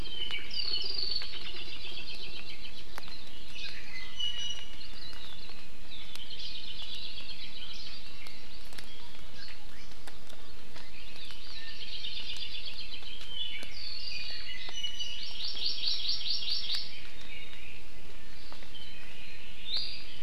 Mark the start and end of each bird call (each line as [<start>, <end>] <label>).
[0.00, 1.30] Apapane (Himatione sanguinea)
[1.30, 2.80] Hawaii Creeper (Loxops mana)
[3.50, 4.90] Iiwi (Drepanis coccinea)
[6.00, 7.80] Hawaii Creeper (Loxops mana)
[7.90, 9.10] Hawaii Amakihi (Chlorodrepanis virens)
[9.00, 9.90] Iiwi (Drepanis coccinea)
[11.20, 12.20] Hawaii Amakihi (Chlorodrepanis virens)
[11.80, 13.10] Hawaii Creeper (Loxops mana)
[13.10, 14.80] Apapane (Himatione sanguinea)
[14.70, 15.30] Iiwi (Drepanis coccinea)
[14.90, 17.00] Hawaii Amakihi (Chlorodrepanis virens)
[19.60, 20.20] Iiwi (Drepanis coccinea)